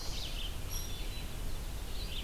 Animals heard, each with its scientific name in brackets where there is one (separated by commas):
Hairy Woodpecker (Dryobates villosus), Red-eyed Vireo (Vireo olivaceus)